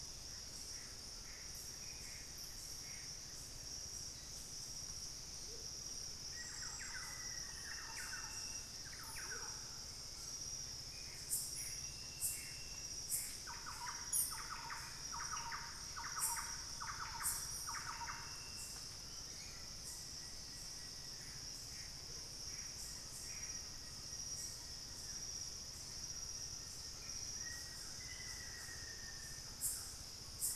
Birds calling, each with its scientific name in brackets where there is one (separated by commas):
Bluish-fronted Jacamar (Galbula cyanescens), Plain-winged Antshrike (Thamnophilus schistaceus), Black-faced Antthrush (Formicarius analis), Gray Antbird (Cercomacra cinerascens), Thrush-like Wren (Campylorhynchus turdinus), Amazonian Motmot (Momotus momota)